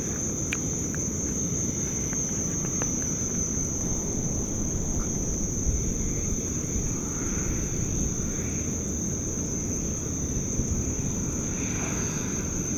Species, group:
Gryllodinus kerkennensis
Orthoptera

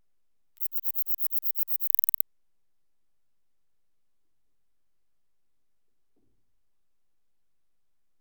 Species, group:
Platycleis affinis
Orthoptera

